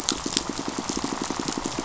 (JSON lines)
{"label": "biophony, pulse", "recorder": "SoundTrap 500"}